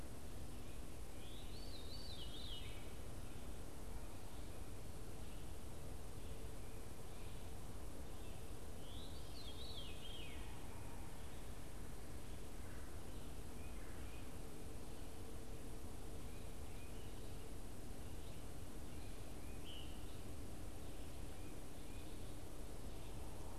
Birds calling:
unidentified bird, Veery (Catharus fuscescens)

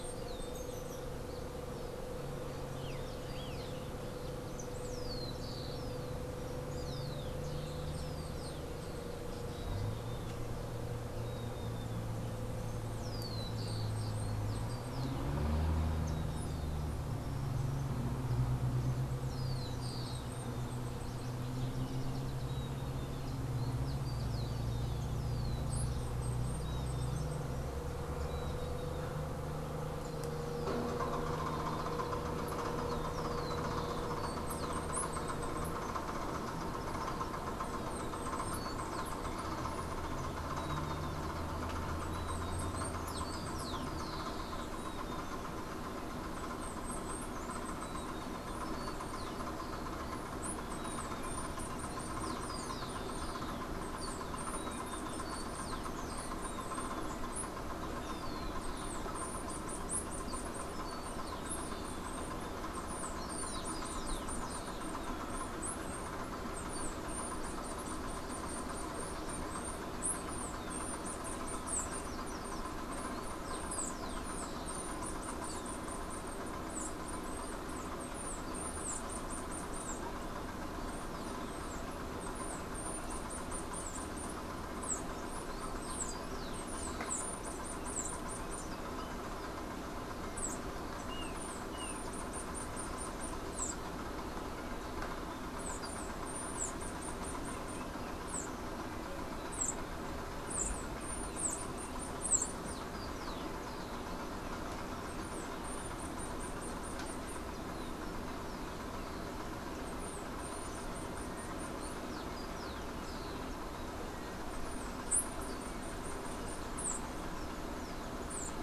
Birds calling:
Chestnut-capped Brushfinch (Arremon brunneinucha), Rufous-collared Sparrow (Zonotrichia capensis)

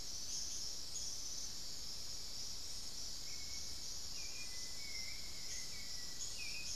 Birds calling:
Dusky-throated Antshrike (Thamnomanes ardesiacus), Hauxwell's Thrush (Turdus hauxwelli), Black-faced Antthrush (Formicarius analis), unidentified bird

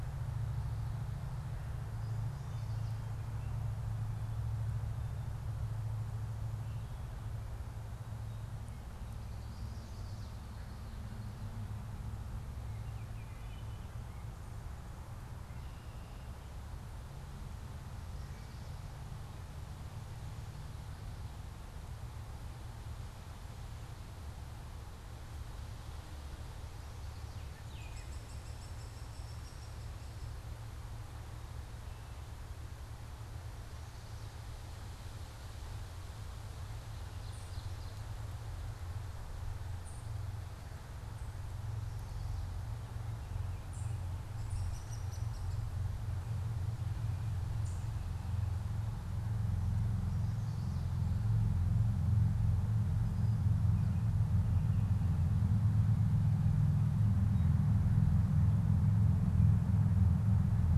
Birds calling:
Ovenbird (Seiurus aurocapilla), Hairy Woodpecker (Dryobates villosus), unidentified bird, Chestnut-sided Warbler (Setophaga pensylvanica), Baltimore Oriole (Icterus galbula)

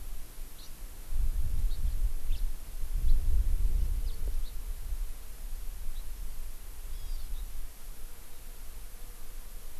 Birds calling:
Hawaii Amakihi (Chlorodrepanis virens), House Finch (Haemorhous mexicanus)

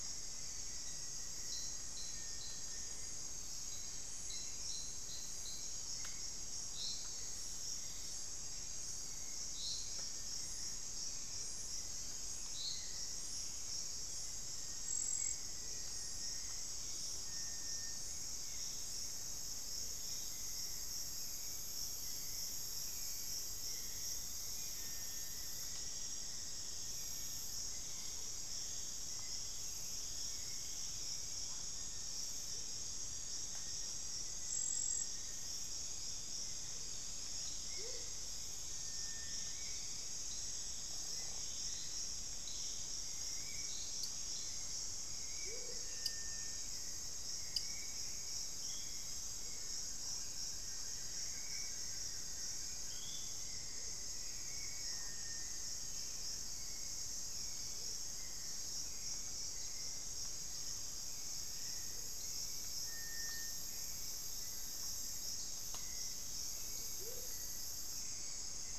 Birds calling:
Amazonian Motmot (Momotus momota), Black-faced Antthrush (Formicarius analis), Hauxwell's Thrush (Turdus hauxwelli), Rufous-fronted Antthrush (Formicarius rufifrons), unidentified bird, Spot-winged Antshrike (Pygiptila stellaris), Blue-crowned Trogon (Trogon curucui)

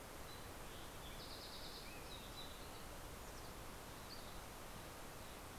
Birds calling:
Red-breasted Nuthatch (Sitta canadensis), Fox Sparrow (Passerella iliaca), Mountain Chickadee (Poecile gambeli)

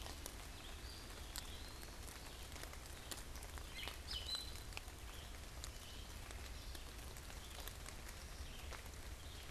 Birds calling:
Gray Catbird (Dumetella carolinensis), Black-capped Chickadee (Poecile atricapillus), Eastern Wood-Pewee (Contopus virens), Red-eyed Vireo (Vireo olivaceus)

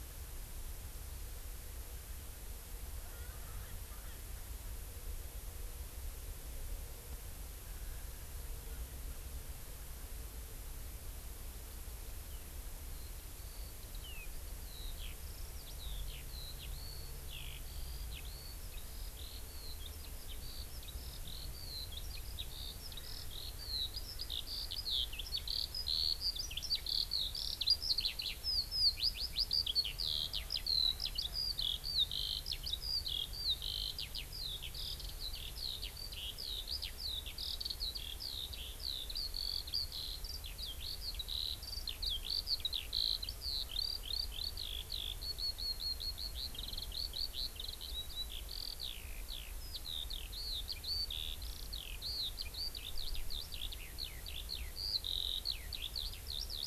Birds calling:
Eurasian Skylark (Alauda arvensis), Erckel's Francolin (Pternistis erckelii)

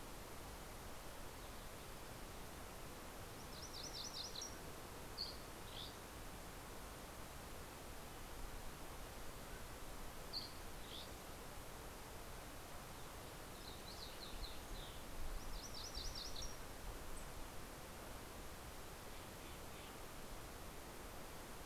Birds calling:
Dusky Flycatcher (Empidonax oberholseri), Lincoln's Sparrow (Melospiza lincolnii), MacGillivray's Warbler (Geothlypis tolmiei), Steller's Jay (Cyanocitta stelleri)

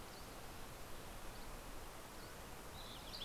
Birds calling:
Mountain Quail (Oreortyx pictus), Dusky Flycatcher (Empidonax oberholseri)

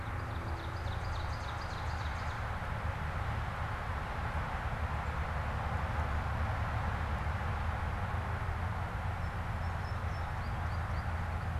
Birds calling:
American Goldfinch (Spinus tristis), Ovenbird (Seiurus aurocapilla)

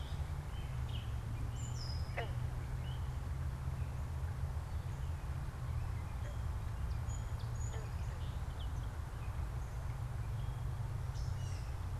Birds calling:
Gray Catbird (Dumetella carolinensis), Song Sparrow (Melospiza melodia)

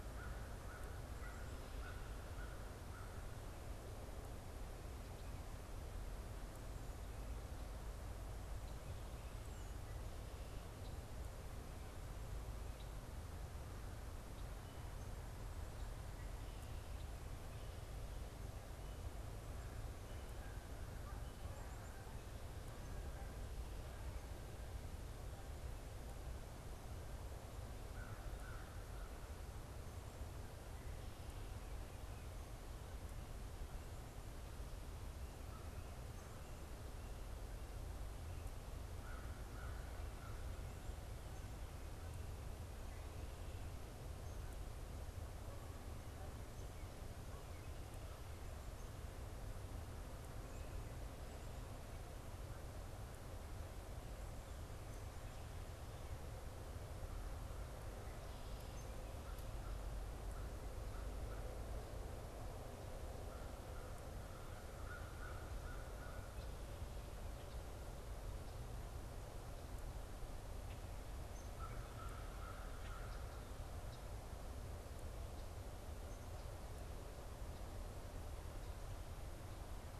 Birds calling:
Canada Goose (Branta canadensis), American Crow (Corvus brachyrhynchos)

